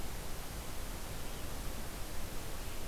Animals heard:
Red-eyed Vireo (Vireo olivaceus)

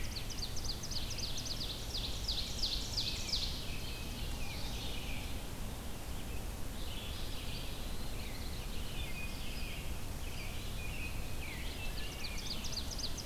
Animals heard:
Eastern Wood-Pewee (Contopus virens)
Red-eyed Vireo (Vireo olivaceus)
American Robin (Turdus migratorius)
Ovenbird (Seiurus aurocapilla)

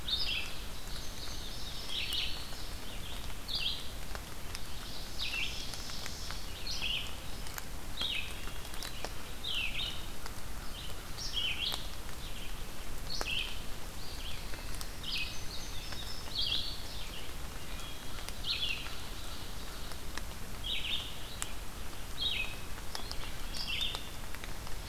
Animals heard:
Ovenbird (Seiurus aurocapilla)
Red-eyed Vireo (Vireo olivaceus)
Wood Thrush (Hylocichla mustelina)
American Crow (Corvus brachyrhynchos)
Indigo Bunting (Passerina cyanea)
Black-throated Blue Warbler (Setophaga caerulescens)

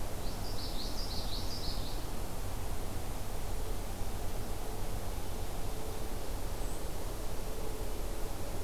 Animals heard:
Common Yellowthroat (Geothlypis trichas)

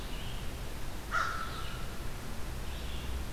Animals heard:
Red-eyed Vireo (Vireo olivaceus)
American Crow (Corvus brachyrhynchos)

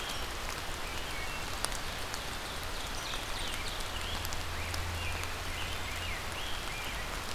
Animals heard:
Ovenbird (Seiurus aurocapilla)
Rose-breasted Grosbeak (Pheucticus ludovicianus)
Wood Thrush (Hylocichla mustelina)

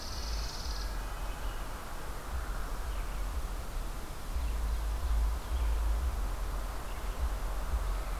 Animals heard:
Red-breasted Nuthatch (Sitta canadensis)
Red-eyed Vireo (Vireo olivaceus)
Chipping Sparrow (Spizella passerina)

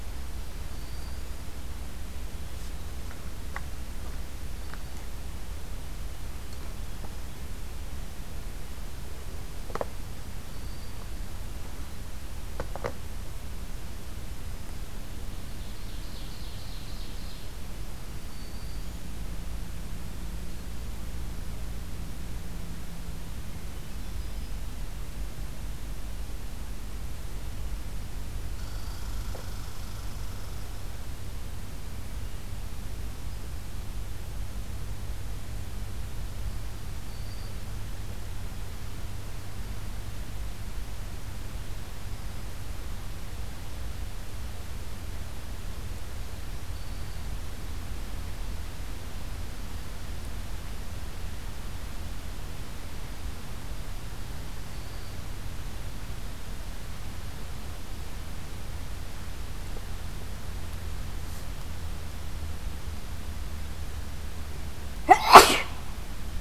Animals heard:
Ovenbird (Seiurus aurocapilla)
Hermit Thrush (Catharus guttatus)
Red Squirrel (Tamiasciurus hudsonicus)
Black-throated Green Warbler (Setophaga virens)

